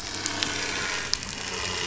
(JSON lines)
{"label": "anthrophony, boat engine", "recorder": "SoundTrap 500"}